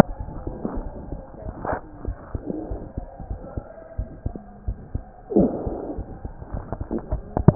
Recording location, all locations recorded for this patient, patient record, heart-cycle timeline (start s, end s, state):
pulmonary valve (PV)
aortic valve (AV)+pulmonary valve (PV)+tricuspid valve (TV)+mitral valve (MV)
#Age: Child
#Sex: Male
#Height: 105.0 cm
#Weight: 18.1 kg
#Pregnancy status: False
#Murmur: Unknown
#Murmur locations: nan
#Most audible location: nan
#Systolic murmur timing: nan
#Systolic murmur shape: nan
#Systolic murmur grading: nan
#Systolic murmur pitch: nan
#Systolic murmur quality: nan
#Diastolic murmur timing: nan
#Diastolic murmur shape: nan
#Diastolic murmur grading: nan
#Diastolic murmur pitch: nan
#Diastolic murmur quality: nan
#Outcome: Abnormal
#Campaign: 2015 screening campaign
0.00	2.03	unannotated
2.03	2.16	S1
2.16	2.32	systole
2.32	2.42	S2
2.42	2.68	diastole
2.68	2.82	S1
2.82	2.94	systole
2.94	3.02	S2
3.02	3.28	diastole
3.28	3.42	S1
3.42	3.54	systole
3.54	3.64	S2
3.64	3.96	diastole
3.96	4.10	S1
4.10	4.22	systole
4.22	4.32	S2
4.32	4.62	diastole
4.62	4.76	S1
4.76	4.92	systole
4.92	5.04	S2
5.04	5.34	diastole
5.34	5.52	S1
5.52	5.63	systole
5.63	5.73	S2
5.73	5.94	diastole
5.94	6.06	S1
6.06	6.19	systole
6.19	6.30	S2
6.30	6.52	diastole
6.52	6.64	S1
6.64	6.76	systole
6.76	6.87	S2
6.87	7.07	diastole
7.07	7.21	S1
7.21	7.34	systole
7.34	7.44	S2
7.44	7.55	unannotated